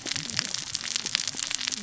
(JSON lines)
{"label": "biophony, cascading saw", "recorder": "SoundTrap 600 or HydroMoth"}